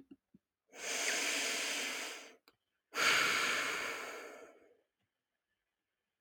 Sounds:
Sigh